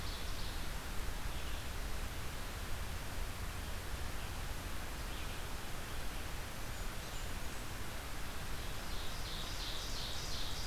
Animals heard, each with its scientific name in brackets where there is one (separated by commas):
Ovenbird (Seiurus aurocapilla), Red-eyed Vireo (Vireo olivaceus), Blackburnian Warbler (Setophaga fusca)